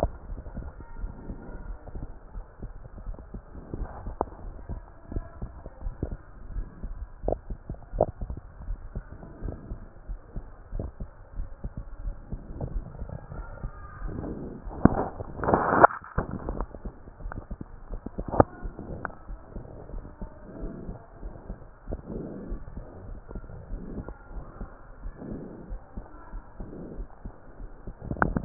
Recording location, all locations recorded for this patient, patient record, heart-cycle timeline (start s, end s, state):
pulmonary valve (PV)
aortic valve (AV)+pulmonary valve (PV)+tricuspid valve (TV)+mitral valve (MV)
#Age: Child
#Sex: Female
#Height: 133.0 cm
#Weight: 39.4 kg
#Pregnancy status: False
#Murmur: Absent
#Murmur locations: nan
#Most audible location: nan
#Systolic murmur timing: nan
#Systolic murmur shape: nan
#Systolic murmur grading: nan
#Systolic murmur pitch: nan
#Systolic murmur quality: nan
#Diastolic murmur timing: nan
#Diastolic murmur shape: nan
#Diastolic murmur grading: nan
#Diastolic murmur pitch: nan
#Diastolic murmur quality: nan
#Outcome: Normal
#Campaign: 2015 screening campaign
0.00	18.62	unannotated
18.62	18.72	S1
18.72	18.87	systole
18.87	19.00	S2
19.00	19.30	diastole
19.30	19.40	S1
19.40	19.54	systole
19.54	19.64	S2
19.64	19.92	diastole
19.92	20.06	S1
20.06	20.20	systole
20.20	20.30	S2
20.30	20.62	diastole
20.62	20.72	S1
20.72	20.84	systole
20.84	20.96	S2
20.96	21.24	diastole
21.24	21.34	S1
21.34	21.48	systole
21.48	21.58	S2
21.58	21.88	diastole
21.88	22.00	S1
22.00	22.10	systole
22.10	22.22	S2
22.22	22.48	diastole
22.48	22.60	S1
22.60	22.76	systole
22.76	22.86	S2
22.86	23.10	diastole
23.10	23.20	S1
23.20	23.34	systole
23.34	23.44	S2
23.44	23.72	diastole
23.72	23.82	S1
23.82	23.96	systole
23.96	24.08	S2
24.08	24.34	diastole
24.34	24.44	S1
24.44	24.60	systole
24.60	24.70	S2
24.70	25.04	diastole
25.04	25.16	S1
25.16	25.30	systole
25.30	25.42	S2
25.42	25.70	diastole
25.70	25.82	S1
25.82	25.96	systole
25.96	26.06	S2
26.06	26.34	diastole
26.34	26.44	S1
26.44	26.60	systole
26.60	26.70	S2
26.70	26.98	diastole
26.98	27.08	S1
27.08	27.26	systole
27.26	27.34	S2
27.34	27.64	diastole
27.64	27.74	S1
27.74	27.88	systole
27.88	27.96	S2
27.96	28.11	diastole
28.11	28.45	unannotated